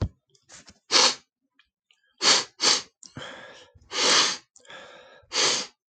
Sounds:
Sniff